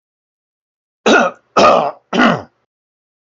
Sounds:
Throat clearing